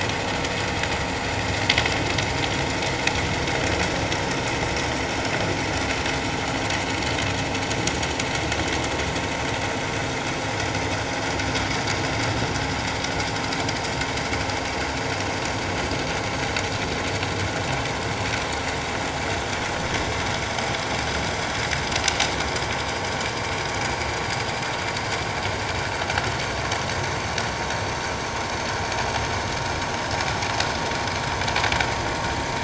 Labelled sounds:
30.1	30.4	vessel noise, 6.6 to 6.8 kHz

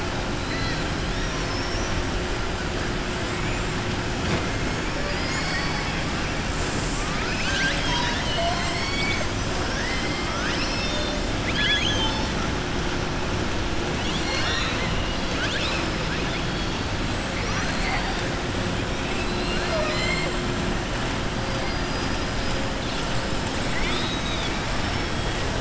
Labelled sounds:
1.1	2.0	killer whale, southern resident, 4.4 to 6.0 kHz
4.9	6.0	killer whale, southern resident, 1.0 to 2.7 kHz
9.6	12.3	killer whale, southern resident, 0.89 to 6.7 kHz
19.0	20.3	killer whale, southern resident, 0.62 to 7.6 kHz
21.4	22.2	killer whale, southern resident, 4.3 to 5.6 kHz

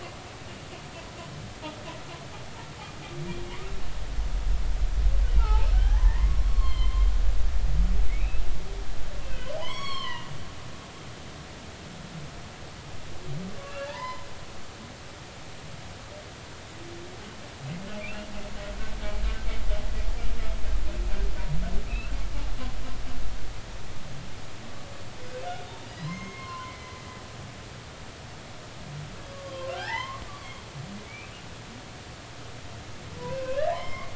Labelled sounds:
5.4	7.0	humpback whale, 0.80 to 4.4 kHz
7.4	8.4	humpback whale, 0.99 to 2.8 kHz
9.2	10.3	humpback whale, 0.80 to 7.8 kHz
13.7	14.3	humpback whale, 0.83 to 2.8 kHz
18.0	18.3	humpback whale, 2.1 to 3.0 kHz
21.9	22.1	humpback whale, 2.3 to 2.8 kHz
25.9	27.0	humpback whale, 0.96 to 6.5 kHz
29.3	30.7	humpback whale, 0.80 to 3.3 kHz
31.0	31.3	humpback whale, 2.2 to 2.7 kHz
33.3	34.1	humpback whale, 0.90 to 5.3 kHz

